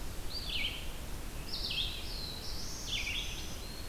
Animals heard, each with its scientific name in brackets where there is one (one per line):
Red-eyed Vireo (Vireo olivaceus)
Black-throated Green Warbler (Setophaga virens)
Black-throated Blue Warbler (Setophaga caerulescens)